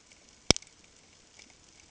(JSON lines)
{"label": "ambient", "recorder": "HydroMoth"}